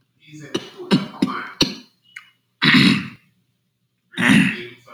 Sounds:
Throat clearing